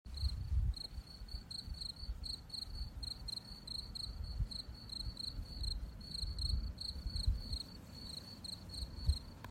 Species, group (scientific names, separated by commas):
Gryllus campestris, Orthoptera